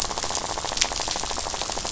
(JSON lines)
{"label": "biophony, rattle", "recorder": "SoundTrap 500"}